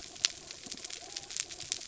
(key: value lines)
label: biophony
recorder: SoundTrap 300